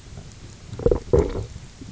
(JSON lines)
{"label": "biophony", "recorder": "SoundTrap 300"}